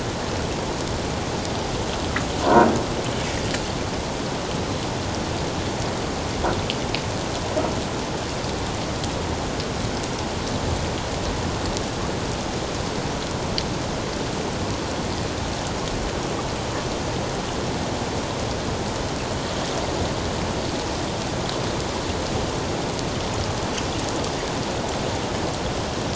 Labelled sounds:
2.4	2.7	humpback whale, 0.91 to 1.1 kHz

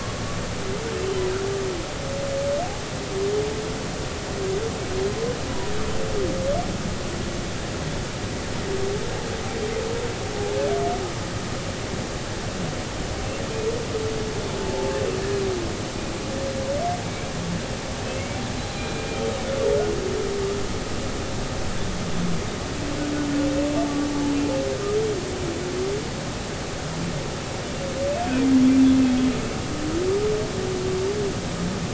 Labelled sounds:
14.6	14.9	humpback whale, 0.83 to 0.93 kHz
17.0	17.3	humpback whale, 2.2 to 2.4 kHz
18.1	19.1	humpback whale, 2.1 to 4.2 kHz

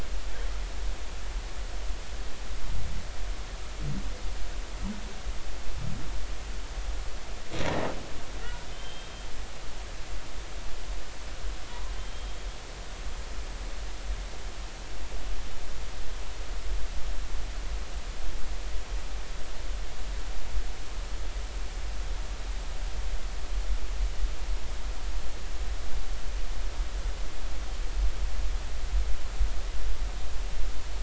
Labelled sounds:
8.7	9.1	humpback whale, 3.0 to 3.2 kHz
12.0	12.4	humpback whale, 3.0 to 3.3 kHz

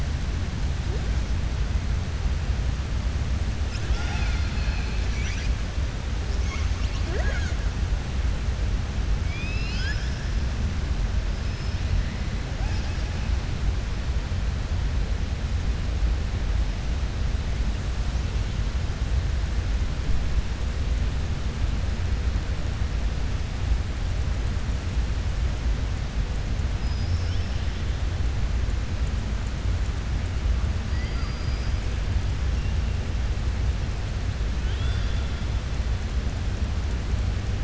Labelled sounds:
30.9	31.8	killer whale, southern resident, 4.7 to 5.4 kHz
34.5	35.3	killer whale, southern resident, 1.3 to 5.6 kHz

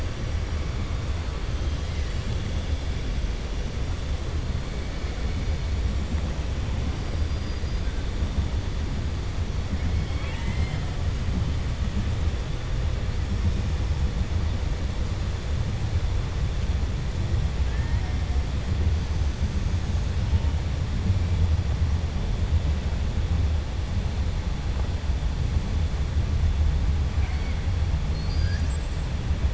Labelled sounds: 9.9	10.9	killer whale, 0.88 to 5.1 kHz

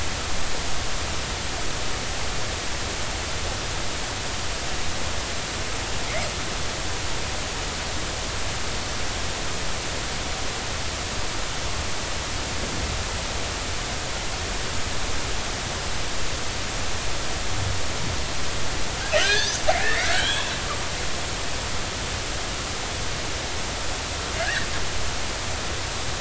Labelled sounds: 19.2	20.6	killer whale, northern resident, G clan, 1.3 to 3.8 kHz
24.4	24.7	killer whale, northern resident, G clan, 1.4 to 1.9 kHz

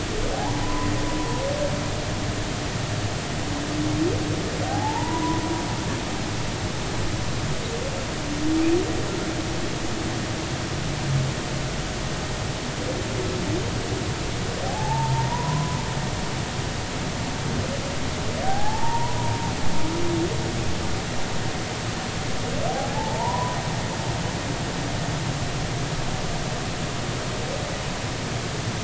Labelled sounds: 0.3	1.4	humpback whale, 0.80 to 1.1 kHz
4.7	5.4	humpback whale, 0.80 to 1.1 kHz
14.7	15.8	humpback whale, 0.80 to 1.1 kHz
18.4	19.3	humpback whale, 0.80 to 1.0 kHz
22.9	23.6	humpback whale, 0.80 to 1.1 kHz

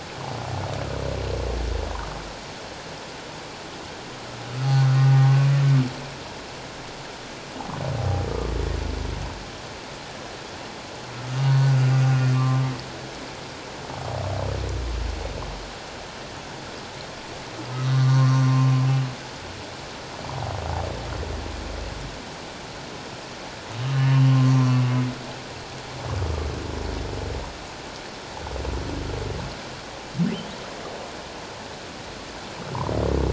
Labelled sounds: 5.2	5.5	humpback whale, 1.1 to 1.2 kHz
11.5	12.6	humpback whale, 1.0 to 1.5 kHz
17.7	18.4	humpback whale, 0.91 to 3.8 kHz
24.1	24.8	humpback whale, 0.97 to 3.0 kHz

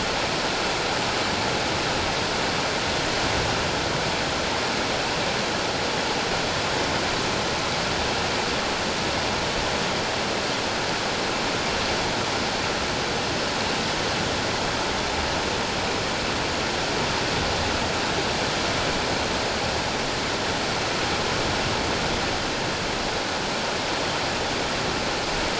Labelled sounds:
1.1	1.3	vessel noise, 7.7 to 7.9 kHz

